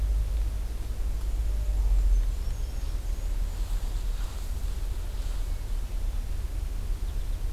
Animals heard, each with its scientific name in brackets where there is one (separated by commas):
American Goldfinch (Spinus tristis), Black-and-white Warbler (Mniotilta varia)